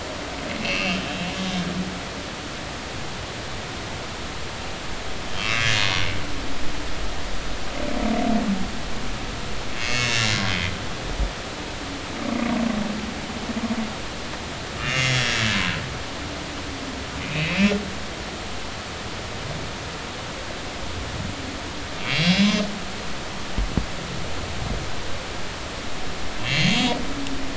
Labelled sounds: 0.6	1.0	humpback whale, 2.5 to 2.9 kHz
1.3	1.6	humpback whale, 3.5 to 3.6 kHz
5.4	5.7	humpback whale, 2.1 to 2.8 kHz
9.8	10.4	humpback whale, 2.0 to 6.8 kHz
14.8	15.4	humpback whale, 2.0 to 6.8 kHz
17.2	17.7	humpback whale, 2.3 to 2.8 kHz
22.0	22.5	humpback whale, 2.1 to 3.5 kHz
26.4	27.0	humpback whale, 3.1 to 6.8 kHz

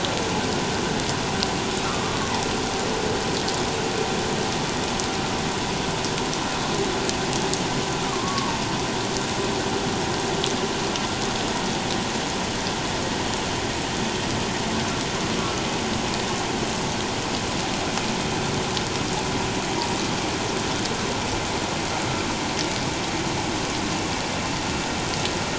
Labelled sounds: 1.8	2.2	humpback whale, 1.1 to 1.4 kHz
8.1	8.6	humpback whale, 0.88 to 1.2 kHz
15.4	15.6	humpback whale, 1.2 to 1.4 kHz

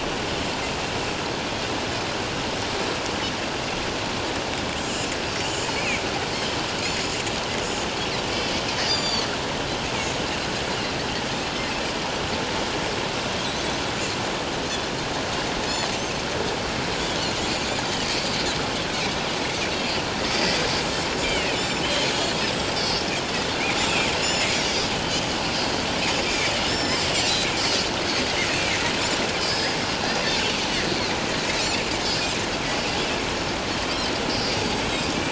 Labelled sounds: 8.3	9.3	Pacific white-sided dolphin, 3.2 to 7.2 kHz
19.7	23.0	Pacific white-sided dolphin, 2.2 to 7.8 kHz
23.8	24.5	Pacific white-sided dolphin, 3.2 to 7.4 kHz
26.3	27.1	Pacific white-sided dolphin, 1.9 to 7.3 kHz
27.6	27.9	Pacific white-sided dolphin, 4.4 to 5.5 kHz
29.4	29.8	Pacific white-sided dolphin, 4.4 to 5.4 kHz
34.6	34.8	Pacific white-sided dolphin, 4.6 to 4.8 kHz

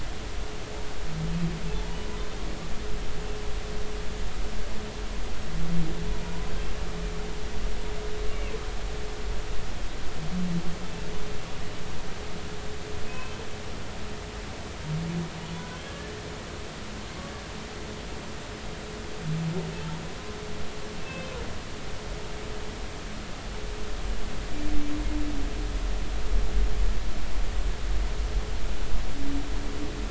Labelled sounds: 1.7	2.0	humpback whale, 0.83 to 0.99 kHz
13.0	13.4	humpback whale, 2.5 to 2.7 kHz
15.8	16.1	humpback whale, 1.6 to 1.8 kHz
21.0	21.4	humpback whale, 2.4 to 2.7 kHz

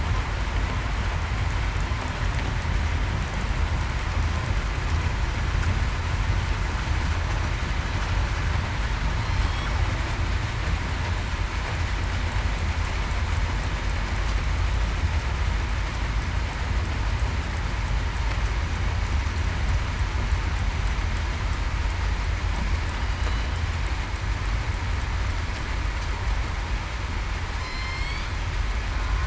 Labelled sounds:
27.5	28.1	killer whale, southern resident, 5.1 to 7.4 kHz

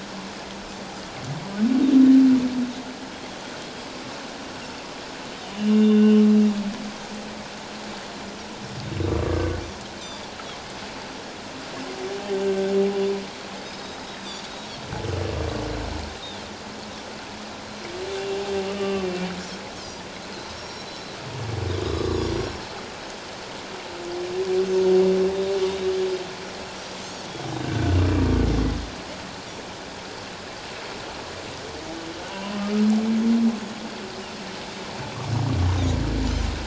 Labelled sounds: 5.6	6.2	humpback whale, 2.7 to 3.8 kHz
12.4	12.7	humpback whale, 1.4 to 1.6 kHz
13.6	14.4	Pacific white-sided dolphin, 3.4 to 5.2 kHz
18.1	18.4	humpback whale, 2.7 to 2.8 kHz
18.8	19.1	humpback whale, 1.1 to 3.0 kHz
20.5	20.9	Pacific white-sided dolphin, 5.4 to 7.0 kHz
21.8	22.2	humpback whale, 1.1 to 1.3 kHz
22.2	22.6	Pacific white-sided dolphin, 5.3 to 5.8 kHz
25.6	25.9	Pacific white-sided dolphin, 3.6 to 3.9 kHz
27.6	28.0	humpback whale, 1.4 to 1.6 kHz
32.3	32.6	humpback whale, 0.91 to 1.1 kHz

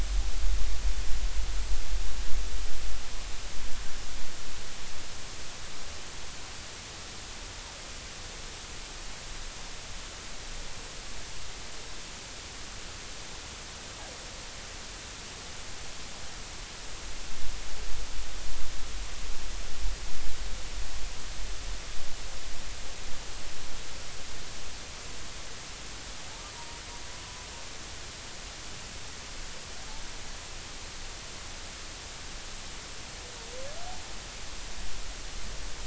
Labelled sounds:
26.5	26.8	humpback whale, 0.90 to 1.0 kHz

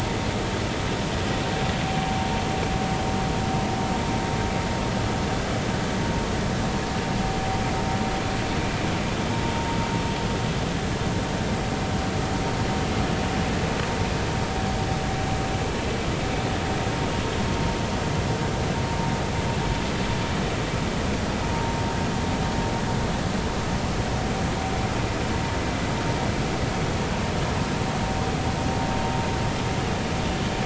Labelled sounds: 21.4	21.7	vessel noise, 0.90 to 0.99 kHz

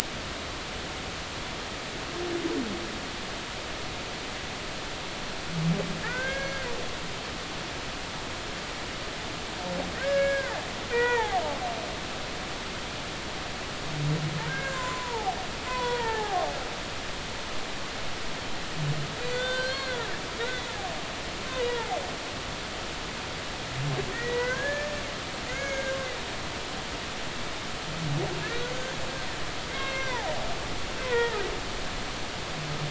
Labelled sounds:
6.0	6.7	humpback whale, 1.2 to 6.0 kHz
10.0	11.4	humpback whale, 0.80 to 2.8 kHz
14.5	15.4	humpback whale, 0.80 to 1.7 kHz
15.7	16.5	humpback whale, 0.80 to 3.5 kHz
19.3	20.1	humpback whale, 1.3 to 4.7 kHz
20.4	20.7	humpback whale, 1.8 to 2.0 kHz
21.7	22.0	humpback whale, 0.80 to 0.99 kHz
24.1	26.0	humpback whale, 1.4 to 6.7 kHz
29.7	30.2	humpback whale, 1.5 to 2.7 kHz
31.0	31.4	humpback whale, 0.80 to 2.1 kHz

